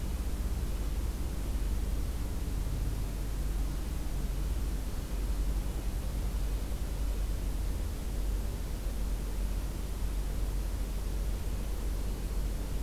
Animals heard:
forest ambience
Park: Acadia National Park